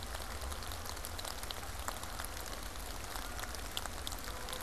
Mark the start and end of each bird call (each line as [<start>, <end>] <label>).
[0.50, 4.62] Canada Goose (Branta canadensis)